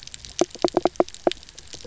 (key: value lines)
label: biophony, knock
recorder: SoundTrap 300